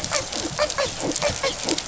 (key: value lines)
label: biophony, dolphin
recorder: SoundTrap 500